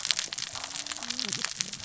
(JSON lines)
{"label": "biophony, cascading saw", "recorder": "SoundTrap 600 or HydroMoth"}